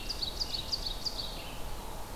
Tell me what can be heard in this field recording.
Ovenbird, Red-eyed Vireo